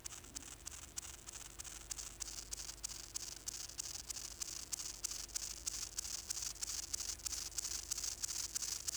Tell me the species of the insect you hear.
Gomphocerippus rufus